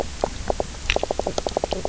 {"label": "biophony, knock croak", "recorder": "SoundTrap 300"}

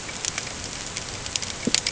{"label": "ambient", "recorder": "HydroMoth"}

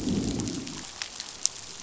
{"label": "biophony, growl", "recorder": "SoundTrap 500"}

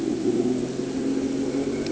{"label": "anthrophony, boat engine", "recorder": "HydroMoth"}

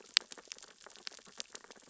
{"label": "biophony, sea urchins (Echinidae)", "recorder": "SoundTrap 600 or HydroMoth"}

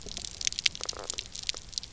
{"label": "biophony, knock croak", "recorder": "SoundTrap 300"}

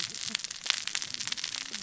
{"label": "biophony, cascading saw", "recorder": "SoundTrap 600 or HydroMoth"}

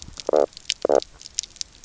{"label": "biophony, knock croak", "recorder": "SoundTrap 300"}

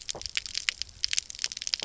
{"label": "biophony, stridulation", "recorder": "SoundTrap 300"}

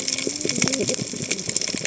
{"label": "biophony, cascading saw", "recorder": "HydroMoth"}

